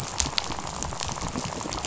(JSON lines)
{"label": "biophony, rattle", "recorder": "SoundTrap 500"}